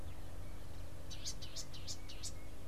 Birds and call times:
Variable Sunbird (Cinnyris venustus): 0:01.6

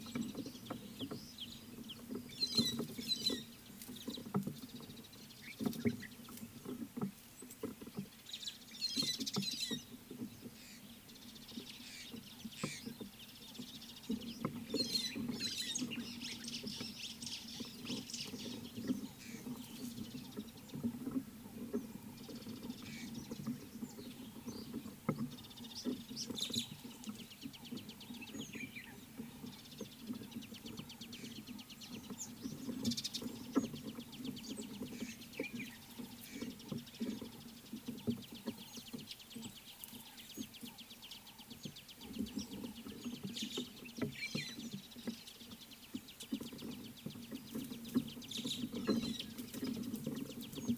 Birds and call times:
Scarlet-chested Sunbird (Chalcomitra senegalensis): 0:01.4
White-headed Buffalo-Weaver (Dinemellia dinemelli): 0:02.6, 0:09.0, 0:14.9, 0:26.5, 0:44.3
Mariqua Sunbird (Cinnyris mariquensis): 0:09.3, 0:30.1, 0:33.0
White-browed Sparrow-Weaver (Plocepasser mahali): 0:17.1

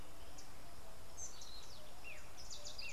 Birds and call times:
Collared Sunbird (Hedydipna collaris): 0:01.3

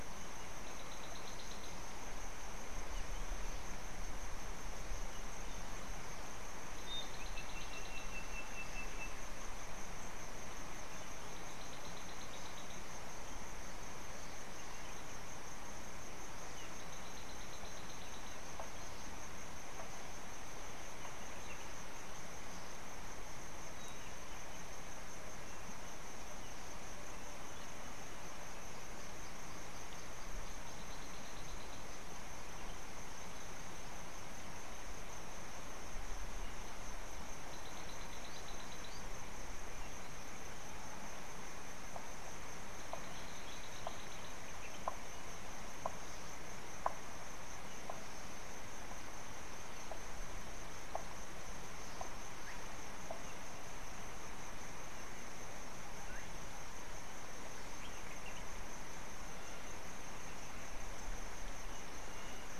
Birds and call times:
African Bare-eyed Thrush (Turdus tephronotus): 0:01.2, 0:07.2, 0:12.0, 0:17.6, 0:38.1
Sulphur-breasted Bushshrike (Telophorus sulfureopectus): 0:08.1

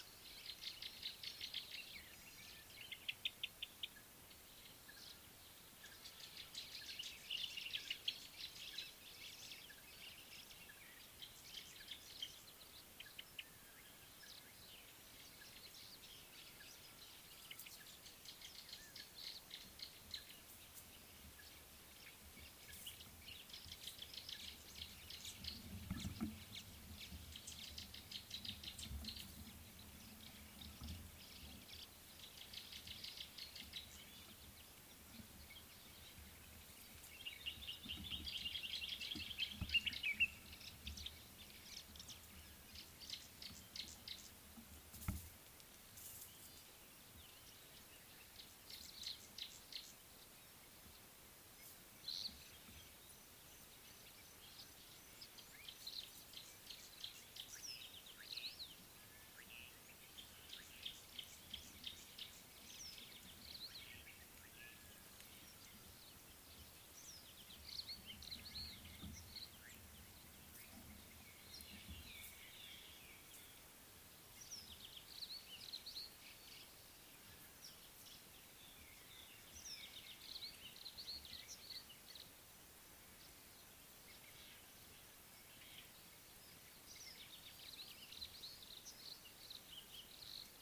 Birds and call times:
African Thrush (Turdus pelios): 0:03.3, 0:13.2
Gray-backed Camaroptera (Camaroptera brevicaudata): 0:06.7, 0:28.2, 0:33.1, 0:43.4, 0:49.4
Common Bulbul (Pycnonotus barbatus): 0:07.4, 0:37.9, 0:40.0
Brimstone Canary (Crithagra sulphurata): 1:08.3, 1:20.9
White-browed Robin-Chat (Cossypha heuglini): 1:12.2

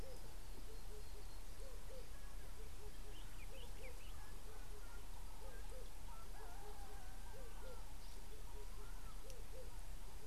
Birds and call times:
Common Bulbul (Pycnonotus barbatus): 0:03.6
Red-eyed Dove (Streptopelia semitorquata): 0:07.7

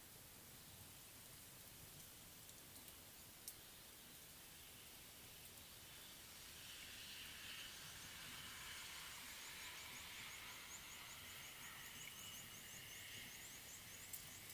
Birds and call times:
Red-cheeked Cordonbleu (Uraeginthus bengalus): 0:11.6

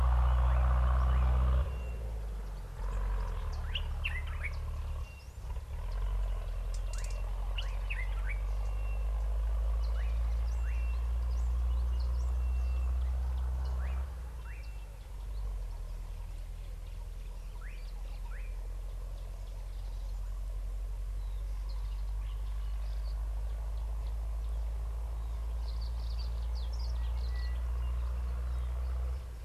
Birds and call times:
Sulphur-breasted Bushshrike (Telophorus sulfureopectus): 0:08.8, 0:14.6, 0:27.3
Slate-colored Boubou (Laniarius funebris): 0:13.9
Brimstone Canary (Crithagra sulphurata): 0:26.3

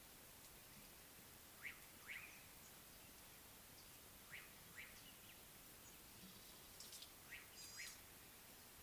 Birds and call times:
Slate-colored Boubou (Laniarius funebris): 0:02.2
Gray-backed Camaroptera (Camaroptera brevicaudata): 0:07.7

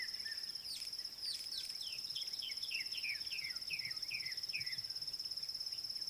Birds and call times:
White Helmetshrike (Prionops plumatus): 0:02.7

